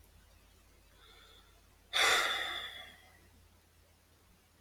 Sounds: Sigh